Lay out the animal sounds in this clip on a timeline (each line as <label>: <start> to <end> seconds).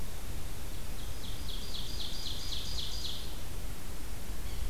Ovenbird (Seiurus aurocapilla): 0.9 to 3.3 seconds
Yellow-bellied Sapsucker (Sphyrapicus varius): 4.4 to 4.7 seconds